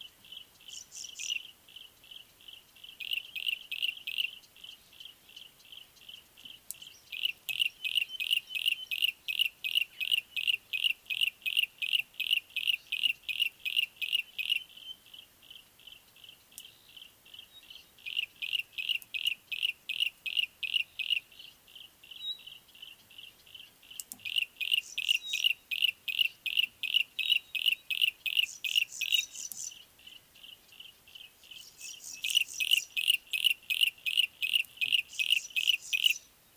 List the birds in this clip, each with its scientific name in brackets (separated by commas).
Pale Prinia (Prinia somalica), Pygmy Batis (Batis perkeo), Yellow-breasted Apalis (Apalis flavida)